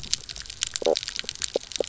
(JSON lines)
{"label": "biophony, knock croak", "recorder": "SoundTrap 300"}